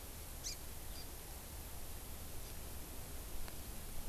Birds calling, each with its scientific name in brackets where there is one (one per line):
Hawaii Amakihi (Chlorodrepanis virens)